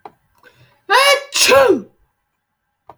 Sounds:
Sneeze